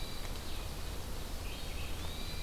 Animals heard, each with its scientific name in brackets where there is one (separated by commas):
Hermit Thrush (Catharus guttatus), Red-eyed Vireo (Vireo olivaceus)